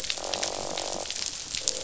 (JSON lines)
{"label": "biophony, croak", "recorder": "SoundTrap 500"}